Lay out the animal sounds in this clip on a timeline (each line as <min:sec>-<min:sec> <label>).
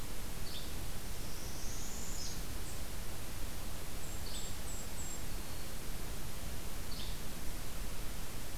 0:00.4-0:00.7 Yellow-bellied Flycatcher (Empidonax flaviventris)
0:01.1-0:02.4 Northern Parula (Setophaga americana)
0:03.8-0:05.3 Golden-crowned Kinglet (Regulus satrapa)
0:04.2-0:04.4 Yellow-bellied Flycatcher (Empidonax flaviventris)
0:05.0-0:05.8 Black-throated Green Warbler (Setophaga virens)
0:06.8-0:07.2 Yellow-bellied Flycatcher (Empidonax flaviventris)